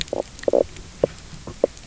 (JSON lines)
{"label": "biophony, knock croak", "recorder": "SoundTrap 300"}